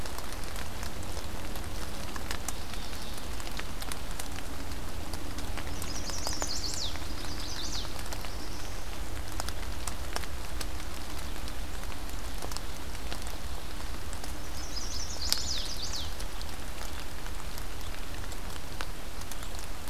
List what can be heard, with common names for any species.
Mourning Warbler, Chestnut-sided Warbler, Black-throated Blue Warbler